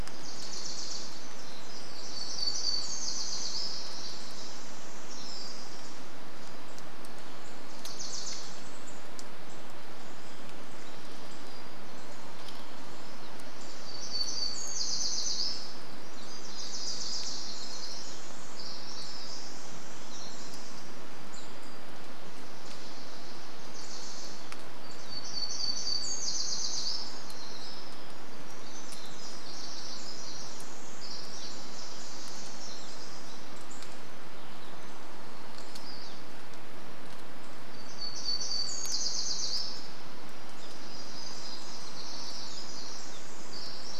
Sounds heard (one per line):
unidentified sound
Evening Grosbeak call
Wilson's Warbler song
unidentified bird chip note
warbler song
Pacific Wren song
Pacific-slope Flycatcher call